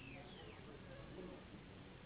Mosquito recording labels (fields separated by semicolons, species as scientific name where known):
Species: Anopheles gambiae s.s.; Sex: female; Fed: unfed; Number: one; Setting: insect culture